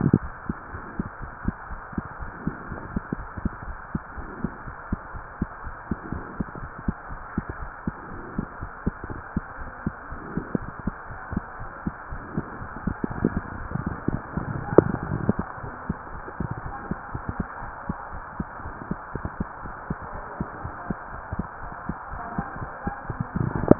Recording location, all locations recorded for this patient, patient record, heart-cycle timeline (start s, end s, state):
mitral valve (MV)
aortic valve (AV)+pulmonary valve (PV)+tricuspid valve (TV)+mitral valve (MV)
#Age: Child
#Sex: Female
#Height: 115.0 cm
#Weight: 23.1 kg
#Pregnancy status: False
#Murmur: Absent
#Murmur locations: nan
#Most audible location: nan
#Systolic murmur timing: nan
#Systolic murmur shape: nan
#Systolic murmur grading: nan
#Systolic murmur pitch: nan
#Systolic murmur quality: nan
#Diastolic murmur timing: nan
#Diastolic murmur shape: nan
#Diastolic murmur grading: nan
#Diastolic murmur pitch: nan
#Diastolic murmur quality: nan
#Outcome: Normal
#Campaign: 2015 screening campaign
0.00	0.70	unannotated
0.70	0.82	S1
0.82	0.96	systole
0.96	1.06	S2
1.06	1.20	diastole
1.20	1.32	S1
1.32	1.46	systole
1.46	1.56	S2
1.56	1.70	diastole
1.70	1.80	S1
1.80	1.94	systole
1.94	2.06	S2
2.06	2.20	diastole
2.20	2.32	S1
2.32	2.44	systole
2.44	2.54	S2
2.54	2.68	diastole
2.68	2.82	S1
2.82	2.90	systole
2.90	3.04	S2
3.04	3.18	diastole
3.18	3.28	S1
3.28	3.36	systole
3.36	3.50	S2
3.50	3.66	diastole
3.66	3.78	S1
3.78	3.90	systole
3.90	4.02	S2
4.02	4.16	diastole
4.16	4.30	S1
4.30	4.42	systole
4.42	4.52	S2
4.52	4.66	diastole
4.66	4.74	S1
4.74	4.88	systole
4.88	5.00	S2
5.00	5.14	diastole
5.14	5.24	S1
5.24	5.38	systole
5.38	5.50	S2
5.50	5.64	diastole
5.64	5.76	S1
5.76	5.90	systole
5.90	5.98	S2
5.98	6.12	diastole
6.12	6.26	S1
6.26	6.38	systole
6.38	6.48	S2
6.48	6.60	diastole
6.60	6.70	S1
6.70	6.84	systole
6.84	6.98	S2
6.98	7.10	diastole
7.10	7.20	S1
7.20	7.34	systole
7.34	7.44	S2
7.44	7.60	diastole
7.60	7.72	S1
7.72	7.86	systole
7.86	7.96	S2
7.96	8.12	diastole
8.12	8.24	S1
8.24	8.36	systole
8.36	8.48	S2
8.48	8.62	diastole
8.62	8.72	S1
8.72	8.82	systole
8.82	8.96	S2
8.96	9.08	diastole
9.08	9.22	S1
9.22	9.32	systole
9.32	9.46	S2
9.46	9.60	diastole
9.60	9.72	S1
9.72	9.82	systole
9.82	9.96	S2
9.96	10.12	diastole
10.12	10.22	S1
10.22	10.34	systole
10.34	10.46	S2
10.46	10.62	diastole
10.62	10.72	S1
10.72	10.86	systole
10.86	10.96	S2
10.96	11.10	diastole
11.10	11.20	S1
11.20	11.32	systole
11.32	11.46	S2
11.46	11.60	diastole
11.60	11.70	S1
11.70	11.82	systole
11.82	11.96	S2
11.96	12.12	diastole
12.12	12.24	S1
12.24	12.34	systole
12.34	12.46	S2
12.46	12.60	diastole
12.60	12.70	S1
12.70	12.84	systole
12.84	12.97	S2
12.97	23.79	unannotated